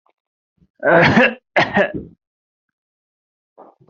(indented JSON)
{
  "expert_labels": [
    {
      "quality": "good",
      "cough_type": "dry",
      "dyspnea": false,
      "wheezing": false,
      "stridor": false,
      "choking": false,
      "congestion": false,
      "nothing": true,
      "diagnosis": "upper respiratory tract infection",
      "severity": "unknown"
    }
  ],
  "gender": "male",
  "respiratory_condition": false,
  "fever_muscle_pain": false,
  "status": "COVID-19"
}